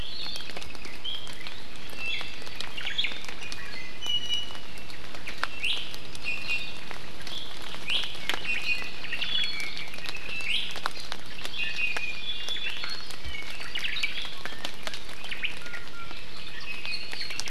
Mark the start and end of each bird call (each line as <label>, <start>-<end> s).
Apapane (Himatione sanguinea), 0.0-1.0 s
Iiwi (Drepanis coccinea), 1.9-2.6 s
Omao (Myadestes obscurus), 2.7-3.2 s
Iiwi (Drepanis coccinea), 3.4-4.7 s
Iiwi (Drepanis coccinea), 5.5-5.8 s
Iiwi (Drepanis coccinea), 6.2-7.0 s
Iiwi (Drepanis coccinea), 7.8-8.1 s
Iiwi (Drepanis coccinea), 8.4-8.9 s
Omao (Myadestes obscurus), 8.9-9.5 s
Iiwi (Drepanis coccinea), 9.2-9.9 s
Iiwi (Drepanis coccinea), 10.4-10.6 s
Hawaii Amakihi (Chlorodrepanis virens), 11.2-12.7 s
Iiwi (Drepanis coccinea), 11.5-12.7 s
Iiwi (Drepanis coccinea), 13.1-13.5 s
Omao (Myadestes obscurus), 13.5-14.2 s
Iiwi (Drepanis coccinea), 14.3-15.0 s
Omao (Myadestes obscurus), 15.1-15.5 s
Iiwi (Drepanis coccinea), 15.6-16.2 s
Iiwi (Drepanis coccinea), 16.5-17.1 s
Omao (Myadestes obscurus), 17.1-17.5 s